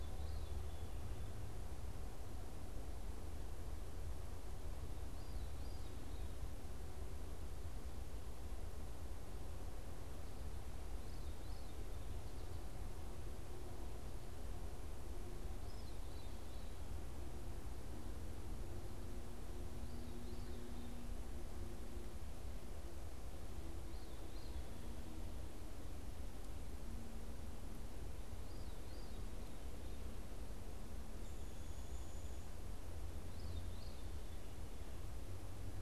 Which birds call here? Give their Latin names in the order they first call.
Catharus fuscescens, Dryobates pubescens